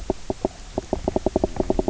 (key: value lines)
label: biophony, knock croak
recorder: SoundTrap 300